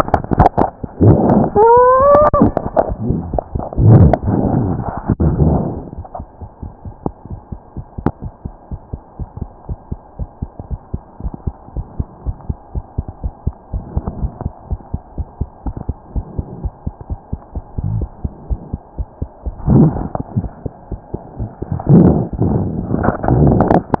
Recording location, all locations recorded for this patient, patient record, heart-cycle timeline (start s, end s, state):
mitral valve (MV)
aortic valve (AV)+tricuspid valve (TV)+mitral valve (MV)
#Age: Child
#Sex: Female
#Height: 78.0 cm
#Weight: 9.8 kg
#Pregnancy status: False
#Murmur: Absent
#Murmur locations: nan
#Most audible location: nan
#Systolic murmur timing: nan
#Systolic murmur shape: nan
#Systolic murmur grading: nan
#Systolic murmur pitch: nan
#Systolic murmur quality: nan
#Diastolic murmur timing: nan
#Diastolic murmur shape: nan
#Diastolic murmur grading: nan
#Diastolic murmur pitch: nan
#Diastolic murmur quality: nan
#Outcome: Abnormal
#Campaign: 2015 screening campaign
0.00	9.66	unannotated
9.66	9.76	S1
9.76	9.89	systole
9.89	9.97	S2
9.97	10.18	diastole
10.18	10.26	S1
10.26	10.40	systole
10.40	10.48	S2
10.48	10.69	diastole
10.69	10.77	S1
10.77	10.92	systole
10.92	10.99	S2
10.99	11.21	diastole
11.21	11.31	S1
11.31	11.44	systole
11.44	11.52	S2
11.52	11.75	diastole
11.75	11.84	S1
11.84	11.97	systole
11.97	12.05	S2
12.05	12.25	diastole
12.25	12.34	S1
12.34	12.47	systole
12.47	12.56	S2
12.56	12.73	diastole
12.73	12.82	S1
12.82	12.96	systole
12.96	13.04	S2
13.04	13.21	diastole
13.21	13.32	S1
13.32	13.44	systole
13.44	13.52	S2
13.52	13.71	diastole
13.71	13.80	S1
13.80	13.93	systole
13.93	14.01	S2
14.01	14.21	diastole
14.21	14.28	S1
14.28	14.43	systole
14.43	14.51	S2
14.51	14.69	diastole
14.69	14.77	S1
14.77	24.00	unannotated